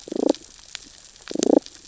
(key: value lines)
label: biophony, damselfish
recorder: SoundTrap 600 or HydroMoth